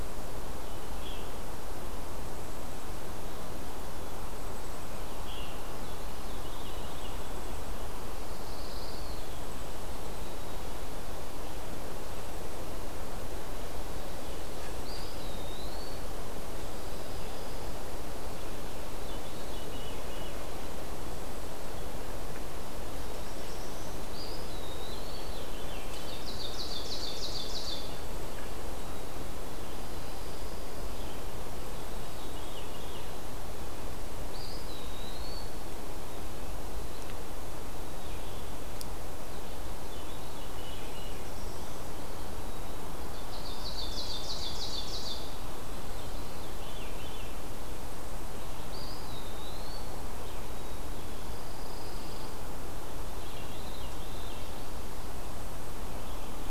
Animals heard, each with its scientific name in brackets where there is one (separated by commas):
Black-throated Blue Warbler (Setophaga caerulescens), Ovenbird (Seiurus aurocapilla), Black-capped Chickadee (Poecile atricapillus), Pine Warbler (Setophaga pinus), Red-eyed Vireo (Vireo olivaceus), Blackpoll Warbler (Setophaga striata), Veery (Catharus fuscescens), Eastern Wood-Pewee (Contopus virens)